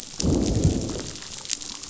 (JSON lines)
{"label": "biophony, growl", "recorder": "SoundTrap 500"}